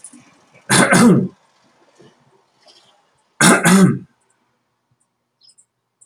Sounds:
Throat clearing